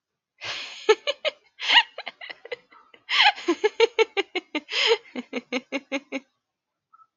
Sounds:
Laughter